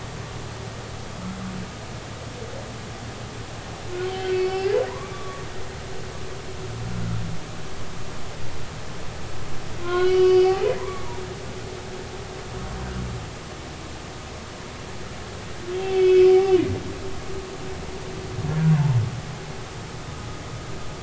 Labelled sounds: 4.1	5.4	humpback whale, 1.1 to 5.4 kHz
9.8	11.5	humpback whale, 0.93 to 4.9 kHz
15.8	16.3	humpback whale, 2.2 to 3.5 kHz

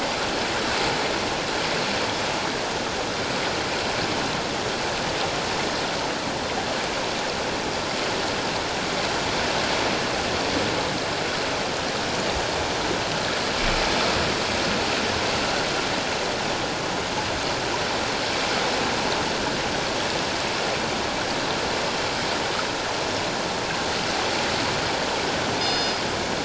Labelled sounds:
25.6	26.0	killer whale, northern resident, G clan, call N24ii, 2.8 to 5.1 kHz

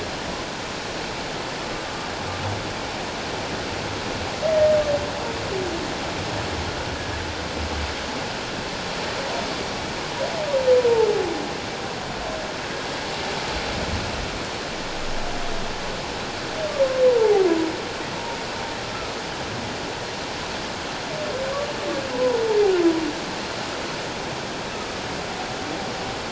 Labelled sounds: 17.1	17.5	humpback whale, 0.78 to 1.0 kHz
22.1	22.4	humpback whale, 0.84 to 1.1 kHz

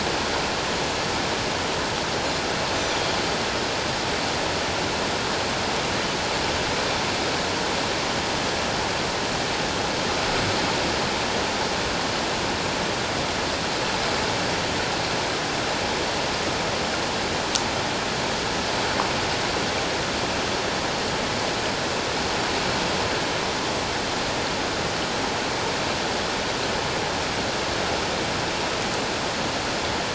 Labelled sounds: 2.7	3.0	Pacific white-sided dolphin, 5.8 to 6.2 kHz

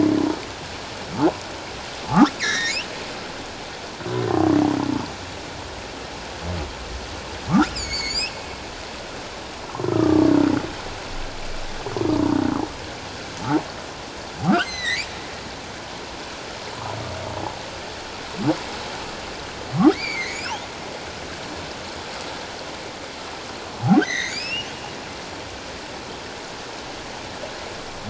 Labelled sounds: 2.4	2.8	humpback whale, 1.5 to 5.9 kHz
7.7	8.3	humpback whale, 2.0 to 7.7 kHz
9.8	10.3	humpback whale, 1.1 to 1.4 kHz
14.5	15.1	humpback whale, 1.7 to 8.0 kHz
19.9	20.7	humpback whale, 1.9 to 3.7 kHz
24.0	24.7	humpback whale, 1.7 to 7.2 kHz

